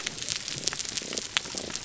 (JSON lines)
{"label": "biophony, damselfish", "recorder": "SoundTrap 300"}